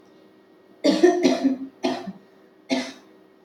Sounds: Cough